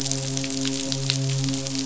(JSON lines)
{"label": "biophony, midshipman", "recorder": "SoundTrap 500"}